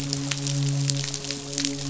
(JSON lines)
{"label": "biophony, midshipman", "recorder": "SoundTrap 500"}